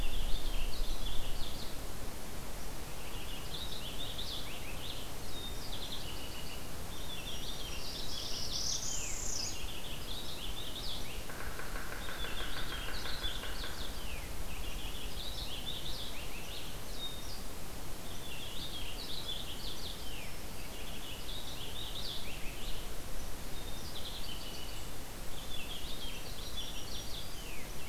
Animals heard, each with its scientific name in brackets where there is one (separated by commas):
Black-throated Green Warbler (Setophaga virens), Northern Parula (Setophaga americana), Purple Finch (Haemorhous purpureus), Pileated Woodpecker (Dryocopus pileatus)